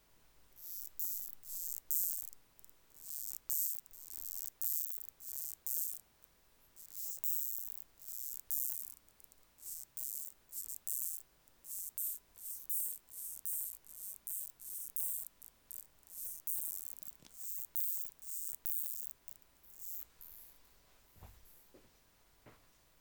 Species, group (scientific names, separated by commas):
Uromenus elegans, Orthoptera